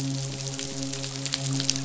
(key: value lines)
label: biophony, midshipman
recorder: SoundTrap 500